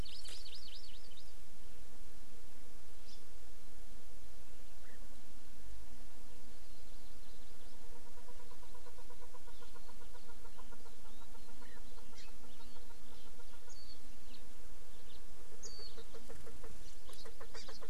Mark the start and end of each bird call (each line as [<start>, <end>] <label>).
[0.00, 1.36] Hawaii Amakihi (Chlorodrepanis virens)
[3.06, 3.16] Hawaii Amakihi (Chlorodrepanis virens)
[6.86, 7.76] Hawaii Amakihi (Chlorodrepanis virens)
[7.66, 13.76] Chukar (Alectoris chukar)
[12.16, 12.36] Hawaii Amakihi (Chlorodrepanis virens)
[13.66, 13.96] Warbling White-eye (Zosterops japonicus)
[14.26, 14.36] House Finch (Haemorhous mexicanus)
[15.06, 15.16] House Finch (Haemorhous mexicanus)
[15.46, 16.76] Chukar (Alectoris chukar)
[15.56, 15.86] Warbling White-eye (Zosterops japonicus)
[17.06, 17.86] Chukar (Alectoris chukar)
[17.56, 17.66] Hawaii Amakihi (Chlorodrepanis virens)